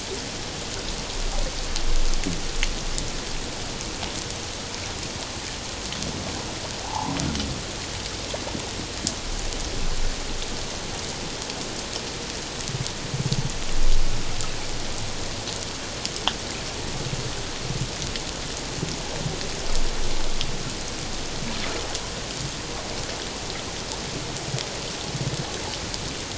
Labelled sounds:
6.8	7.2	humpback whale, 0.78 to 1.2 kHz

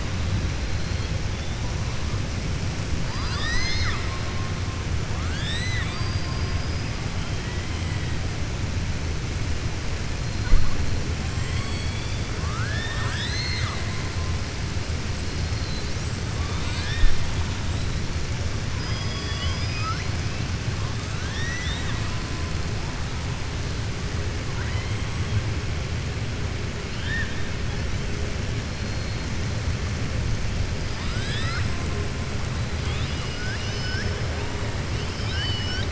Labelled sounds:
3.0	4.2	killer whale, southern resident, 1.0 to 7.9 kHz
5.1	6.8	killer whale, southern resident, 1.1 to 7.8 kHz
11.4	13.9	killer whale, southern resident, 0.69 to 6.4 kHz
18.7	20.1	killer whale, southern resident, 1.1 to 6.0 kHz
24.5	25.0	killer whale, southern resident, 0.94 to 3.2 kHz
30.9	31.7	killer whale, southern resident, 1.2 to 5.4 kHz
32.8	34.1	killer whale, southern resident, 1.5 to 6.1 kHz
35.0	35.9	killer whale, southern resident, 1.5 to 5.7 kHz

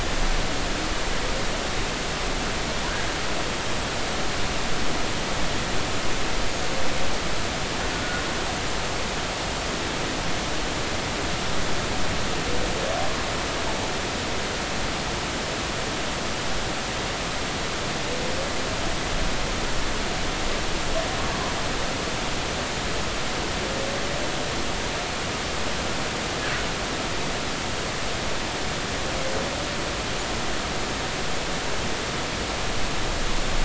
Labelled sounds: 26.4	26.7	humpback whale, 1.4 to 1.8 kHz

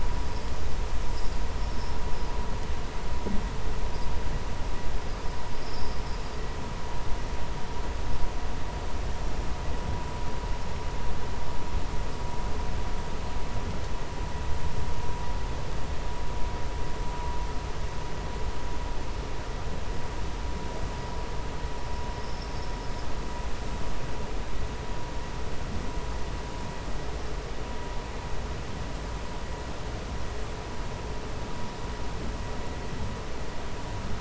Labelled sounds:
5.5	6.3	vessel noise, 4.7 to 5.5 kHz
22.1	23.1	vessel noise, 4.7 to 5.5 kHz

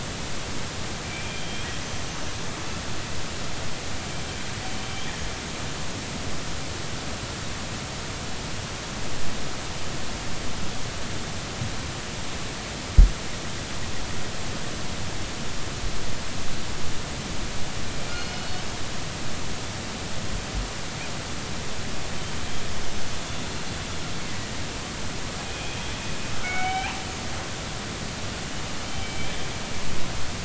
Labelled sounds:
1.0	1.7	killer whale, northern resident, G clan, call N24i, 2.2 to 3.4 kHz
18.1	18.6	killer whale, northern resident, G clan, 2.1 to 4.4 kHz
24.2	24.6	killer whale, northern resident, 1.8 to 2.2 kHz
25.4	25.8	killer whale, northern resident, G clan, call N24ii, 2.3 to 2.6 kHz
26.3	27.0	killer whale, northern resident, G clan, GI subclan, call N24i, 0.80 to 3.2 kHz
28.9	29.3	killer whale, northern resident, G clan, call N40, 2.2 to 3.2 kHz

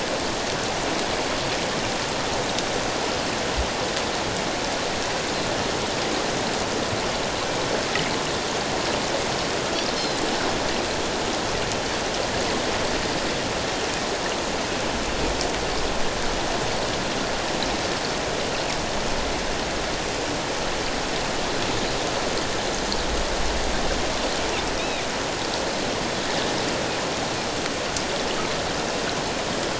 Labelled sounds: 10.0	10.2	Pacific white-sided dolphin, 3.9 to 5.3 kHz
24.8	25.0	Pacific white-sided dolphin, 2.2 to 4.0 kHz

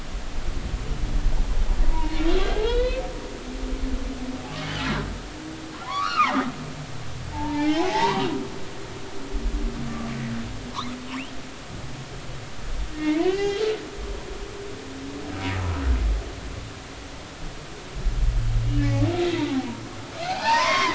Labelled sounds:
1.8	2.3	humpback whale, 0.86 to 2.9 kHz
2.6	4.0	humpback whale, 1.3 to 4.6 kHz
4.8	5.0	humpback whale, 1.3 to 1.5 kHz
5.8	6.4	humpback whale, 0.80 to 2.9 kHz
7.3	8.3	humpback whale, 0.80 to 3.2 kHz
12.9	13.6	humpback whale, 0.80 to 3.3 kHz
20.1	20.9	humpback whale, 0.80 to 4.2 kHz

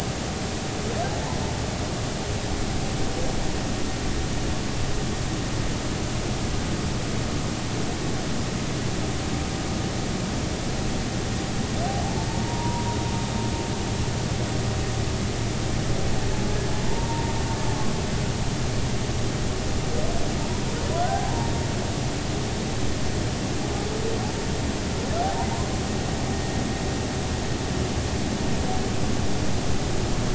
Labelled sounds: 1.1	1.4	humpback whale, 0.80 to 1.1 kHz
12.3	12.9	humpback whale, 0.86 to 1.0 kHz
16.9	17.3	humpback whale, 0.86 to 0.99 kHz
21.0	21.5	humpback whale, 0.80 to 1.7 kHz

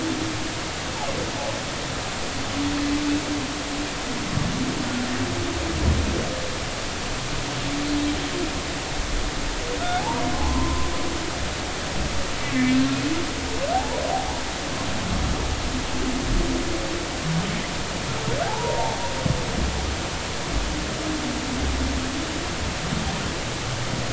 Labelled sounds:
10.0	10.9	humpback whale, 0.80 to 1.1 kHz
12.5	12.8	humpback whale, 2.0 to 2.1 kHz
13.7	14.0	humpback whale, 0.80 to 1.0 kHz
18.4	19.0	humpback whale, 0.80 to 1.1 kHz

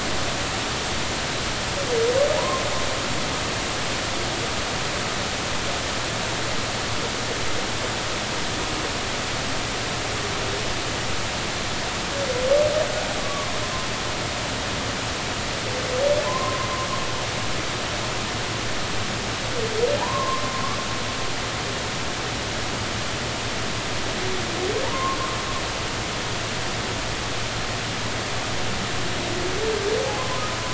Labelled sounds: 2.3	2.6	humpback whale, 0.83 to 1.1 kHz
13.2	13.9	humpback whale, 0.93 to 1.2 kHz
16.2	16.7	humpback whale, 0.96 to 1.1 kHz
20.0	20.4	humpback whale, 0.80 to 1.2 kHz
24.9	25.2	humpback whale, 0.86 to 1.1 kHz
30.2	30.4	humpback whale, 0.96 to 1.1 kHz

